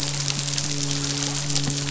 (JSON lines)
{"label": "biophony, midshipman", "recorder": "SoundTrap 500"}